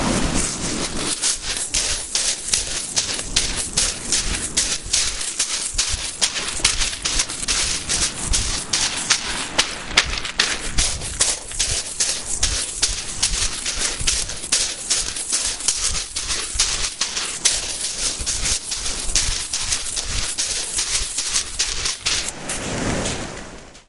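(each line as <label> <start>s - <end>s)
Continuous muffled urban white noise in the background. 0.0s - 23.9s
Distant vehicles passing by. 0.4s - 5.8s
Quick, repeated footsteps outdoors in an urban environment. 1.1s - 22.4s
A vehicle drives by in the distance. 9.3s - 10.8s
Distant vehicles passing by. 13.2s - 20.1s
Vehicles drive by. 22.5s - 23.7s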